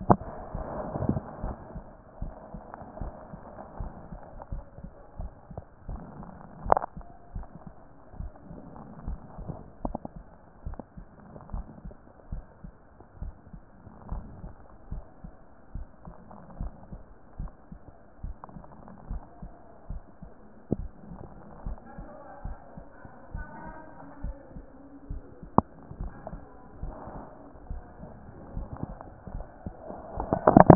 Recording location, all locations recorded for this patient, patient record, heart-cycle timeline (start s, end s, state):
mitral valve (MV)
pulmonary valve (PV)+tricuspid valve (TV)+mitral valve (MV)
#Age: nan
#Sex: Female
#Height: nan
#Weight: nan
#Pregnancy status: True
#Murmur: Absent
#Murmur locations: nan
#Most audible location: nan
#Systolic murmur timing: nan
#Systolic murmur shape: nan
#Systolic murmur grading: nan
#Systolic murmur pitch: nan
#Systolic murmur quality: nan
#Diastolic murmur timing: nan
#Diastolic murmur shape: nan
#Diastolic murmur grading: nan
#Diastolic murmur pitch: nan
#Diastolic murmur quality: nan
#Outcome: Abnormal
#Campaign: 2014 screening campaign
0.00	2.20	unannotated
2.20	2.32	S1
2.32	2.52	systole
2.52	2.62	S2
2.62	3.00	diastole
3.00	3.12	S1
3.12	3.30	systole
3.30	3.40	S2
3.40	3.80	diastole
3.80	3.92	S1
3.92	4.10	systole
4.10	4.20	S2
4.20	4.52	diastole
4.52	4.64	S1
4.64	4.82	systole
4.82	4.92	S2
4.92	5.18	diastole
5.18	5.30	S1
5.30	5.50	systole
5.50	5.60	S2
5.60	5.88	diastole
5.88	6.00	S1
6.00	6.18	systole
6.18	6.28	S2
6.28	6.64	diastole
6.64	6.78	S1
6.78	6.96	systole
6.96	7.06	S2
7.06	7.34	diastole
7.34	7.46	S1
7.46	7.64	systole
7.64	7.74	S2
7.74	8.18	diastole
8.18	8.30	S1
8.30	8.50	systole
8.50	8.60	S2
8.60	9.06	diastole
9.06	9.18	S1
9.18	9.40	systole
9.40	9.50	S2
9.50	9.84	diastole
9.84	9.98	S1
9.98	10.14	systole
10.14	10.24	S2
10.24	10.66	diastole
10.66	10.78	S1
10.78	10.96	systole
10.96	11.06	S2
11.06	11.52	diastole
11.52	11.66	S1
11.66	11.84	systole
11.84	11.94	S2
11.94	12.32	diastole
12.32	12.44	S1
12.44	12.62	systole
12.62	12.72	S2
12.72	13.20	diastole
13.20	13.34	S1
13.34	13.52	systole
13.52	13.62	S2
13.62	14.10	diastole
14.10	14.24	S1
14.24	14.42	systole
14.42	14.52	S2
14.52	14.92	diastole
14.92	15.04	S1
15.04	15.22	systole
15.22	15.32	S2
15.32	15.74	diastole
15.74	15.86	S1
15.86	16.06	systole
16.06	16.14	S2
16.14	16.60	diastole
16.60	16.72	S1
16.72	16.92	systole
16.92	17.02	S2
17.02	17.38	diastole
17.38	17.50	S1
17.50	17.70	systole
17.70	17.80	S2
17.80	18.24	diastole
18.24	18.36	S1
18.36	18.54	systole
18.54	18.64	S2
18.64	19.10	diastole
19.10	19.22	S1
19.22	19.42	systole
19.42	19.52	S2
19.52	19.90	diastole
19.90	20.02	S1
20.02	20.20	systole
20.20	20.30	S2
20.30	20.74	diastole
20.74	20.88	S1
20.88	21.08	systole
21.08	21.18	S2
21.18	21.66	diastole
21.66	21.78	S1
21.78	21.98	systole
21.98	22.08	S2
22.08	22.44	diastole
22.44	22.56	S1
22.56	22.76	systole
22.76	22.86	S2
22.86	23.34	diastole
23.34	23.46	S1
23.46	23.64	systole
23.64	23.74	S2
23.74	24.22	diastole
24.22	24.36	S1
24.36	24.54	systole
24.54	24.64	S2
24.64	25.10	diastole
25.10	25.22	S1
25.22	25.42	systole
25.42	25.50	S2
25.50	26.00	diastole
26.00	26.12	S1
26.12	26.32	systole
26.32	26.40	S2
26.40	26.82	diastole
26.82	26.94	S1
26.94	27.14	systole
27.14	27.24	S2
27.24	27.70	diastole
27.70	27.82	S1
27.82	28.00	systole
28.00	28.10	S2
28.10	28.56	diastole
28.56	28.68	S1
28.68	28.86	systole
28.86	28.96	S2
28.96	29.34	diastole
29.34	29.46	S1
29.46	29.64	systole
29.64	29.74	S2
29.74	30.14	diastole
30.14	30.75	unannotated